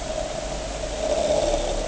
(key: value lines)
label: anthrophony, boat engine
recorder: HydroMoth